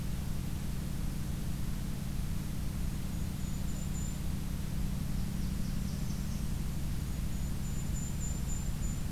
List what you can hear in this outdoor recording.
Golden-crowned Kinglet, Blackburnian Warbler